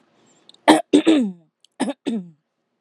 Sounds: Throat clearing